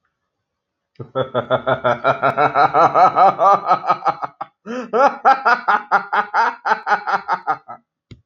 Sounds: Laughter